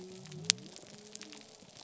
{"label": "biophony", "recorder": "SoundTrap 300"}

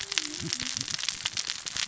{"label": "biophony, cascading saw", "recorder": "SoundTrap 600 or HydroMoth"}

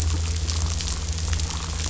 {"label": "anthrophony, boat engine", "recorder": "SoundTrap 500"}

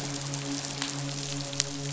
{"label": "biophony, midshipman", "recorder": "SoundTrap 500"}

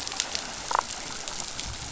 {"label": "biophony, damselfish", "recorder": "SoundTrap 500"}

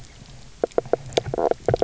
{"label": "biophony, knock croak", "recorder": "SoundTrap 300"}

